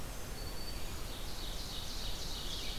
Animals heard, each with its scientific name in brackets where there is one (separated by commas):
Black-throated Green Warbler (Setophaga virens), Ovenbird (Seiurus aurocapilla), Red-eyed Vireo (Vireo olivaceus)